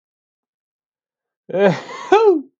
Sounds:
Sneeze